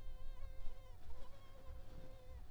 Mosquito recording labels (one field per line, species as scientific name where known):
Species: Culex pipiens complex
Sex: female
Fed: unfed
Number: one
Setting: cup